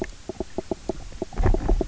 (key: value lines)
label: biophony, knock croak
recorder: SoundTrap 300